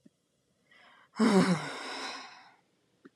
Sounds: Sigh